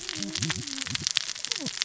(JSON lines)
{"label": "biophony, cascading saw", "recorder": "SoundTrap 600 or HydroMoth"}